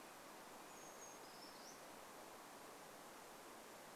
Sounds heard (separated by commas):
Red-breasted Nuthatch song, Brown Creeper song